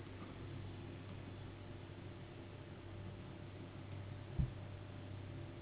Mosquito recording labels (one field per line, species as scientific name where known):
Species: Anopheles gambiae s.s.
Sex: female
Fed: unfed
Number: one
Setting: insect culture